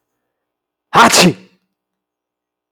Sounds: Sneeze